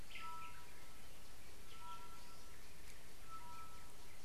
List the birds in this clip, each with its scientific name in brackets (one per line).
Tropical Boubou (Laniarius major)